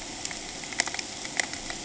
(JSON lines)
{"label": "ambient", "recorder": "HydroMoth"}